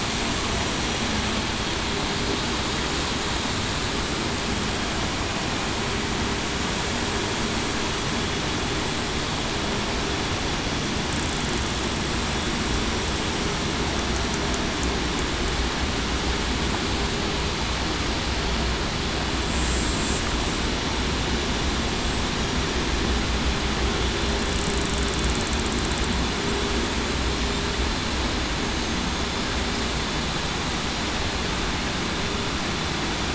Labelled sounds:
20.9	21.6	killer whale, southern resident, 7.3 to 8.0 kHz
22.2	22.6	killer whale, southern resident, 7.8 to 8.0 kHz
28.6	29.0	killer whale, southern resident, 6.38 to 6.45 kHz

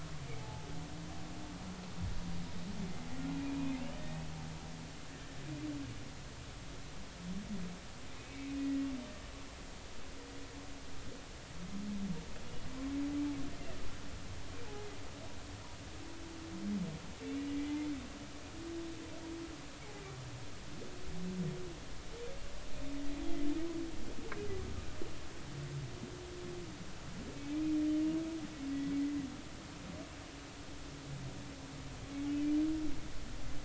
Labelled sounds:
0.4	0.7	humpback whale, 0.80 to 0.90 kHz
3.4	3.8	humpback whale, 2.3 to 2.6 kHz
8.6	8.9	humpback whale, 1.9 to 2.0 kHz

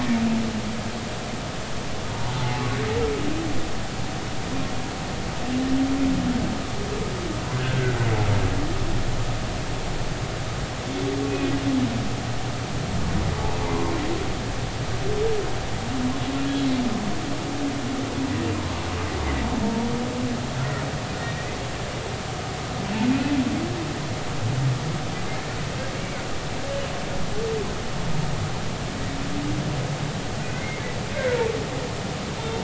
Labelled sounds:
2.1	2.6	humpback whale, 0.80 to 1.1 kHz
7.6	8.0	humpback whale, 1.3 to 1.7 kHz
19.6	19.9	humpback whale, 0.86 to 0.99 kHz
30.5	30.8	humpback whale, 2.0 to 2.2 kHz
32.4	32.6	humpback whale, 3.6 to 3.7 kHz

